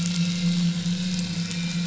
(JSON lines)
{"label": "anthrophony, boat engine", "recorder": "SoundTrap 500"}